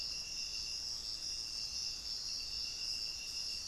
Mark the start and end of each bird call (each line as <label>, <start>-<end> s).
unidentified bird, 0.0-1.3 s